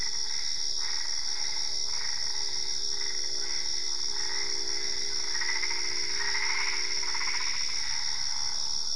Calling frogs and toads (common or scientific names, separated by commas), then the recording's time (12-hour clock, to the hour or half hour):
Boana albopunctata, Usina tree frog
10:30pm